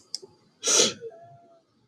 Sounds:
Sniff